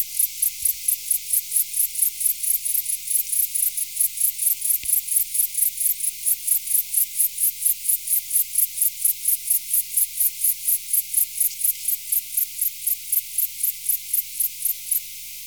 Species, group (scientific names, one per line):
Pholidoptera stankoi
Orthoptera